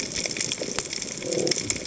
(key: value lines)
label: biophony
recorder: HydroMoth